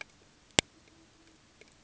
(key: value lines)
label: ambient
recorder: HydroMoth